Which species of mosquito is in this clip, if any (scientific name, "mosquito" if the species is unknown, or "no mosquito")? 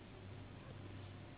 Anopheles gambiae s.s.